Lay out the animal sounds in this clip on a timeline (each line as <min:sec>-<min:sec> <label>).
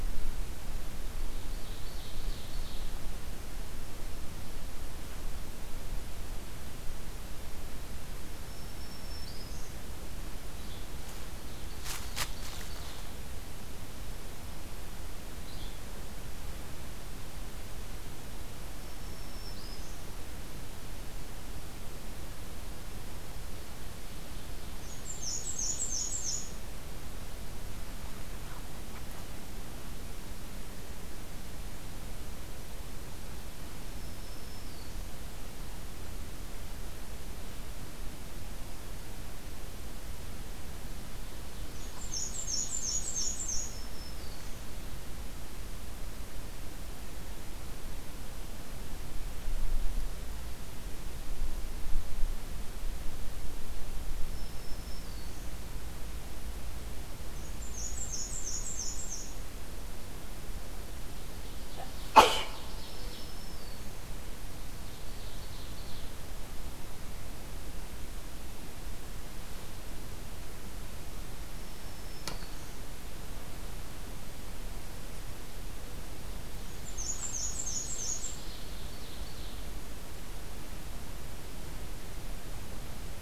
0:00.7-0:03.0 Ovenbird (Seiurus aurocapilla)
0:08.3-0:09.9 Black-throated Green Warbler (Setophaga virens)
0:10.9-0:13.2 Ovenbird (Seiurus aurocapilla)
0:15.3-0:16.0 Yellow-bellied Flycatcher (Empidonax flaviventris)
0:18.6-0:20.1 Black-throated Green Warbler (Setophaga virens)
0:24.2-0:26.4 Ovenbird (Seiurus aurocapilla)
0:24.4-0:26.7 Black-and-white Warbler (Mniotilta varia)
0:33.7-0:35.1 Black-throated Green Warbler (Setophaga virens)
0:41.4-0:43.3 Ovenbird (Seiurus aurocapilla)
0:41.8-0:44.1 Yellow-bellied Flycatcher (Empidonax flaviventris)
0:43.6-0:44.8 Black-throated Green Warbler (Setophaga virens)
0:54.1-0:55.7 Black-throated Green Warbler (Setophaga virens)
0:57.3-0:59.6 Black-and-white Warbler (Mniotilta varia)
1:01.4-1:03.8 Ovenbird (Seiurus aurocapilla)
1:02.5-1:04.0 Black-throated Green Warbler (Setophaga virens)
1:04.5-1:06.2 Ovenbird (Seiurus aurocapilla)
1:11.2-1:12.8 Black-throated Green Warbler (Setophaga virens)
1:16.5-1:18.8 Black-and-white Warbler (Mniotilta varia)
1:17.2-1:19.7 Ovenbird (Seiurus aurocapilla)